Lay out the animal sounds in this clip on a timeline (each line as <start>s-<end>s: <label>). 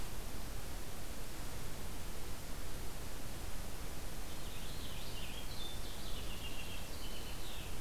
4.2s-7.8s: Purple Finch (Haemorhous purpureus)